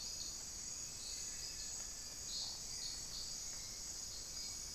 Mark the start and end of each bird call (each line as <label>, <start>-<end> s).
Hauxwell's Thrush (Turdus hauxwelli), 0.0-4.7 s